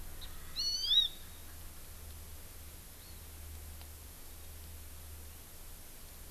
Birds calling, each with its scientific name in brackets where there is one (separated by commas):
Hawaii Amakihi (Chlorodrepanis virens), Erckel's Francolin (Pternistis erckelii)